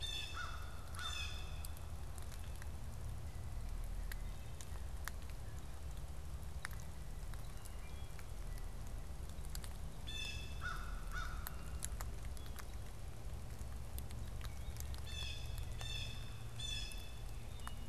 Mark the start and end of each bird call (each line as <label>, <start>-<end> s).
Blue Jay (Cyanocitta cristata), 0.0-1.8 s
American Crow (Corvus brachyrhynchos), 0.2-1.3 s
Wood Thrush (Hylocichla mustelina), 7.6-8.2 s
Blue Jay (Cyanocitta cristata), 9.9-10.6 s
American Crow (Corvus brachyrhynchos), 10.4-11.7 s
Blue Jay (Cyanocitta cristata), 14.9-17.2 s